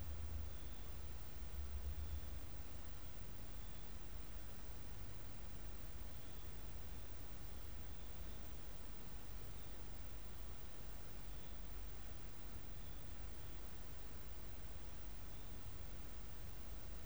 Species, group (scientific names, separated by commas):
Leptophyes albovittata, Orthoptera